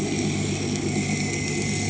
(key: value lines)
label: anthrophony, boat engine
recorder: HydroMoth